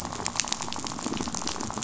{"label": "biophony, rattle", "recorder": "SoundTrap 500"}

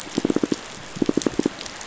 {"label": "biophony, pulse", "recorder": "SoundTrap 500"}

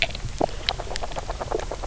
{"label": "biophony, knock croak", "recorder": "SoundTrap 300"}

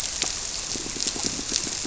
{"label": "biophony, squirrelfish (Holocentrus)", "recorder": "SoundTrap 300"}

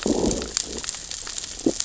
{"label": "biophony, growl", "recorder": "SoundTrap 600 or HydroMoth"}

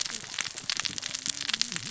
{"label": "biophony, cascading saw", "recorder": "SoundTrap 600 or HydroMoth"}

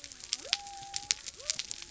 {"label": "biophony", "recorder": "SoundTrap 300"}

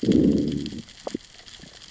{"label": "biophony, growl", "recorder": "SoundTrap 600 or HydroMoth"}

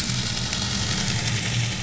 {"label": "anthrophony, boat engine", "recorder": "SoundTrap 500"}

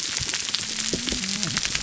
{"label": "biophony, whup", "recorder": "SoundTrap 300"}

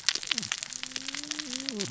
{"label": "biophony, cascading saw", "recorder": "SoundTrap 600 or HydroMoth"}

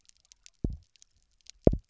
{"label": "biophony, double pulse", "recorder": "SoundTrap 300"}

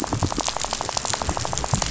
{"label": "biophony, rattle", "recorder": "SoundTrap 500"}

